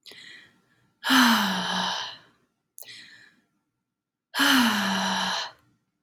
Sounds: Sigh